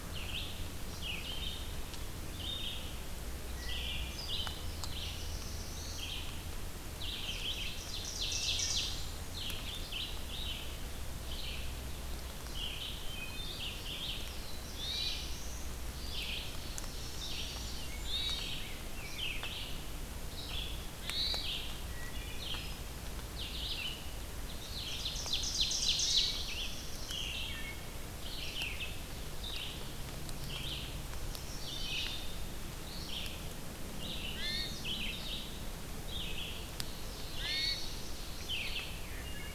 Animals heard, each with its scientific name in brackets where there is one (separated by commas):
Chestnut-sided Warbler (Setophaga pensylvanica), Wood Thrush (Hylocichla mustelina), Red-eyed Vireo (Vireo olivaceus), Black-throated Blue Warbler (Setophaga caerulescens), Ovenbird (Seiurus aurocapilla), Hermit Thrush (Catharus guttatus)